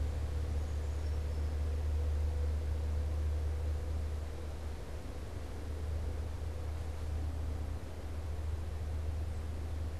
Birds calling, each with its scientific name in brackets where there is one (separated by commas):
Brown Creeper (Certhia americana)